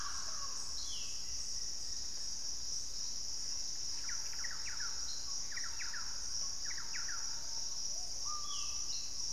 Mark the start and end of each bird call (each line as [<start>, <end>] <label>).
[0.00, 1.02] Mealy Parrot (Amazona farinosa)
[0.52, 1.42] Ringed Antpipit (Corythopis torquatus)
[0.92, 5.32] Purple-throated Fruitcrow (Querula purpurata)
[1.12, 2.72] Plain-winged Antshrike (Thamnophilus schistaceus)
[3.32, 7.82] Thrush-like Wren (Campylorhynchus turdinus)
[6.62, 9.12] Screaming Piha (Lipaugus vociferans)
[8.32, 9.32] Ringed Antpipit (Corythopis torquatus)